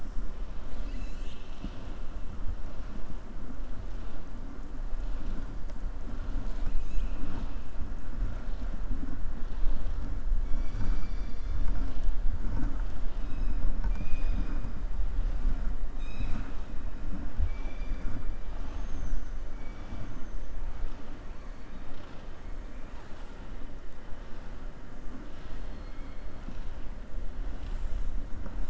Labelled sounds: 25.3	26.2	killer whale, southern resident, 1.3 to 5.1 kHz

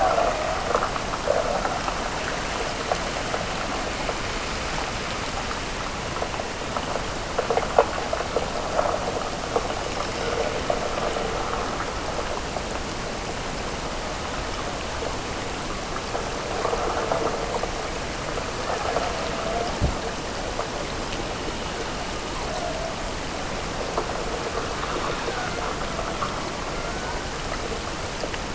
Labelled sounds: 18.7	19.8	killer whale, Bigg's (transient), Gulf of Alaska transient, 0.32 to 0.99 kHz
25.1	27.1	killer whale, Bigg's (transient), Gulf of Alaska transient, 0.55 to 1.6 kHz

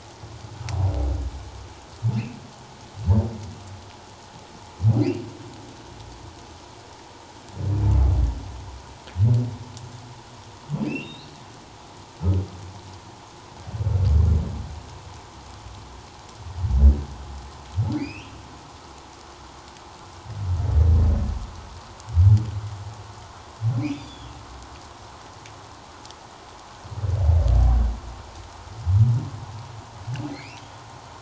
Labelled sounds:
10.8	11.4	humpback whale, 2.2 to 4.5 kHz
18.0	18.4	humpback whale, 1.9 to 3.3 kHz
23.8	24.3	humpback whale, 2.0 to 5.0 kHz
30.3	30.6	humpback whale, 1.9 to 2.8 kHz

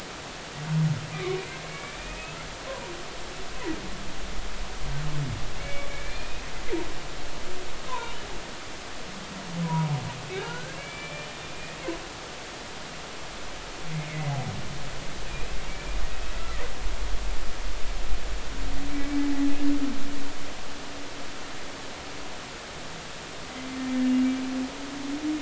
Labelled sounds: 1.1	2.9	humpback whale, 0.90 to 2.7 kHz
5.6	6.4	humpback whale, 2.2 to 2.6 kHz
7.9	8.1	humpback whale, 0.90 to 1.1 kHz
9.6	11.3	humpback whale, 0.90 to 3.0 kHz
15.2	16.0	humpback whale, 2.2 to 2.7 kHz
16.4	16.6	humpback whale, 1.1 to 1.4 kHz
18.9	19.2	humpback whale, 2.2 to 2.3 kHz

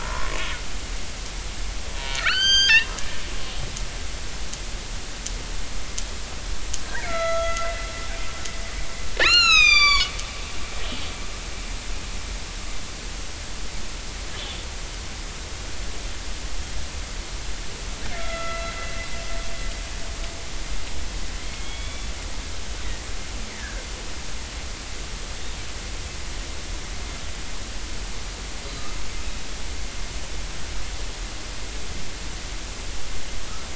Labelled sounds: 0.0	0.3	killer whale, northern resident, 0.86 to 1.2 kHz
2.0	2.9	killer whale, northern resident, 1.2 to 8.0 kHz
6.8	7.8	killer whale, northern resident, 1.2 to 6.7 kHz
9.2	11.1	killer whale, northern resident, 0.96 to 7.6 kHz
18.2	18.6	killer whale, northern resident, 1.3 to 3.5 kHz
21.4	22.1	killer whale, northern resident, 2.0 to 3.5 kHz
23.5	23.9	killer whale, northern resident, 1.5 to 2.0 kHz

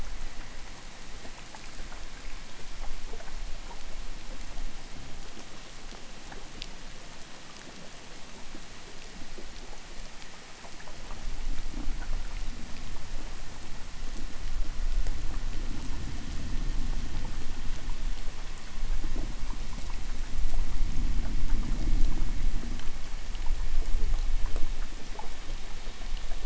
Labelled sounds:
4.6	5.5	fish, 0 to 0.61 kHz

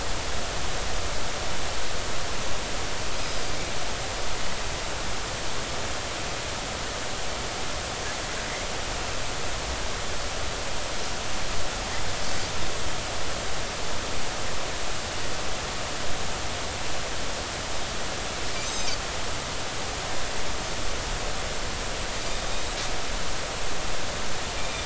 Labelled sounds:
3.2	3.4	Pacific white-sided dolphin, 4.7 to 5.2 kHz
18.6	19.0	Pacific white-sided dolphin, 3.6 to 6.4 kHz
22.5	22.7	Pacific white-sided dolphin, 3.7 to 3.9 kHz
24.6	24.8	Pacific white-sided dolphin, 2.2 to 2.5 kHz

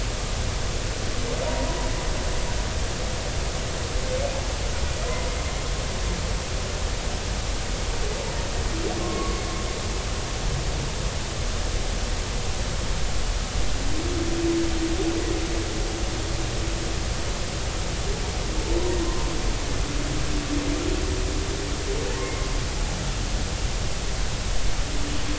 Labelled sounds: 1.5	1.8	humpback whale, 0.90 to 1.1 kHz
9.0	9.4	humpback whale, 0.99 to 1.2 kHz
19.0	19.3	humpback whale, 0.90 to 1.1 kHz

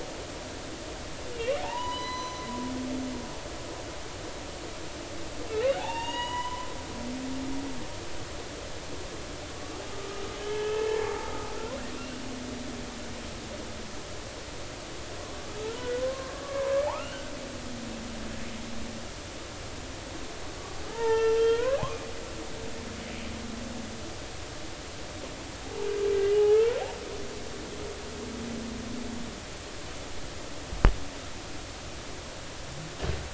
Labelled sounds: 1.3	2.4	humpback whale, 0.80 to 6.1 kHz
5.8	6.7	humpback whale, 0.80 to 6.9 kHz
10.4	11.3	humpback whale, 0.80 to 3.1 kHz
16.0	17.3	humpback whale, 0.80 to 3.1 kHz
20.9	21.8	humpback whale, 0.80 to 3.3 kHz

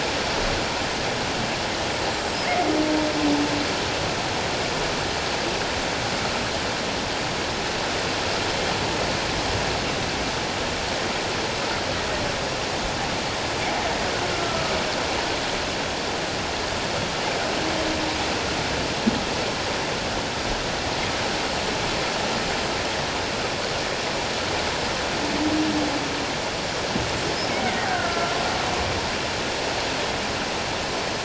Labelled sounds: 14.3	14.6	killer whale, Bigg's (transient), 1.2 to 1.4 kHz
27.9	28.4	killer whale, Bigg's (transient), 1.3 to 1.7 kHz

